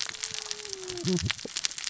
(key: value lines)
label: biophony, cascading saw
recorder: SoundTrap 600 or HydroMoth